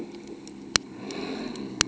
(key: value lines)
label: ambient
recorder: HydroMoth